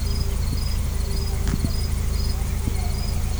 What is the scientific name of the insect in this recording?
Tettigonia viridissima